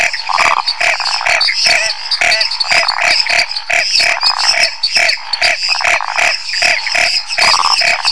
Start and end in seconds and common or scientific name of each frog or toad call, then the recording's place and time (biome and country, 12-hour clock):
0.0	8.1	Chaco tree frog
0.0	8.1	lesser tree frog
0.0	8.1	dwarf tree frog
0.3	0.7	waxy monkey tree frog
2.8	3.2	waxy monkey tree frog
4.1	4.6	waxy monkey tree frog
5.6	6.2	waxy monkey tree frog
7.4	7.8	waxy monkey tree frog
Cerrado, Brazil, 9:30pm